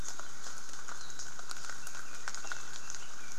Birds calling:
Red-billed Leiothrix (Leiothrix lutea), Apapane (Himatione sanguinea)

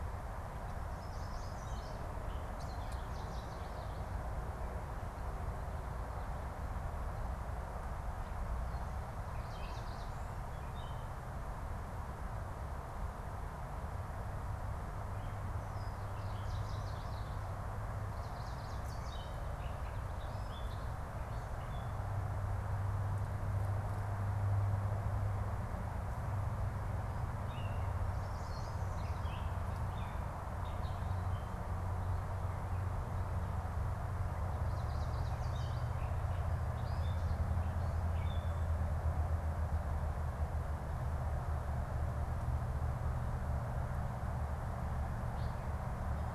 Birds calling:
Yellow Warbler (Setophaga petechia), Gray Catbird (Dumetella carolinensis), Chestnut-sided Warbler (Setophaga pensylvanica)

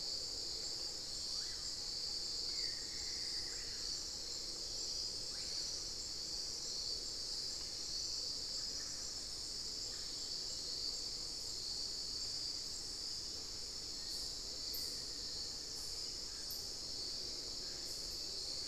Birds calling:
Screaming Piha (Lipaugus vociferans), Buff-throated Woodcreeper (Xiphorhynchus guttatus), Black-faced Antthrush (Formicarius analis), unidentified bird

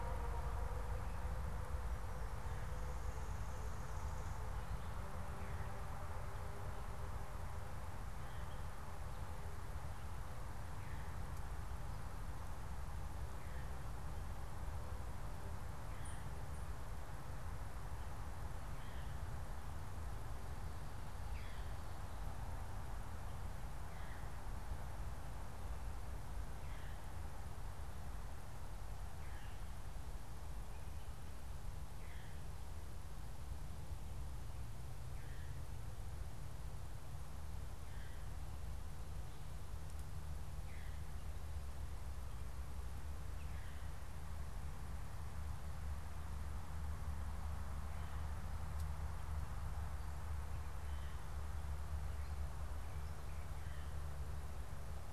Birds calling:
unidentified bird, Veery (Catharus fuscescens)

